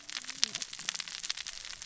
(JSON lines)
{"label": "biophony, cascading saw", "recorder": "SoundTrap 600 or HydroMoth"}